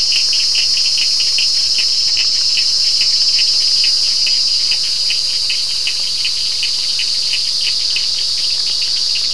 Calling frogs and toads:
Sphaenorhynchus surdus
~7pm

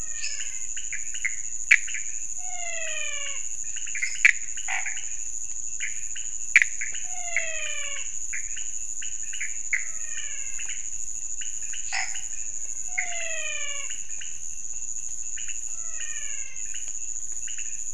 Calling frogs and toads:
Physalaemus albonotatus, Leptodactylus podicipinus, Dendropsophus minutus, Boana raniceps
~1am

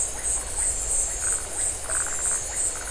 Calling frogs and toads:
Phyllomedusa distincta
8:30pm

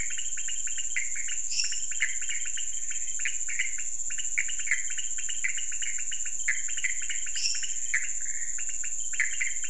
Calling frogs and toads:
Leptodactylus podicipinus, Pithecopus azureus, Dendropsophus minutus
2am

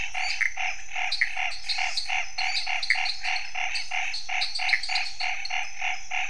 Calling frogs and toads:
Boana raniceps, Dendropsophus minutus, Dendropsophus nanus
~8pm

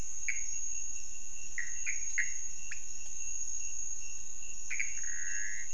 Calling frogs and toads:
Pithecopus azureus, Leptodactylus podicipinus
1:30am

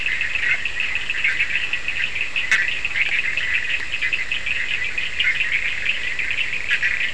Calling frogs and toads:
Boana bischoffi, Sphaenorhynchus surdus
3:30am

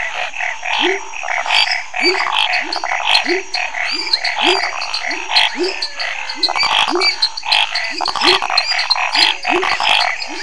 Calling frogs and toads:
Boana raniceps, Leptodactylus labyrinthicus, Scinax fuscovarius, Dendropsophus minutus, Dendropsophus nanus, Leptodactylus fuscus, Physalaemus albonotatus
~8pm

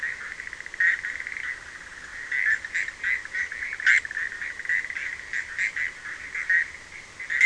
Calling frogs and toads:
Boana bischoffi
1:30am

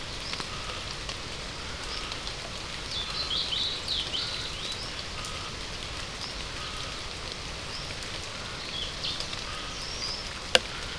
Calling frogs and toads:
Scinax perereca
~6pm

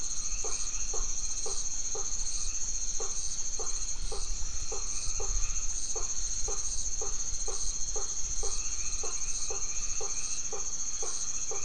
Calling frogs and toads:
Boana albomarginata, Boana faber
9pm

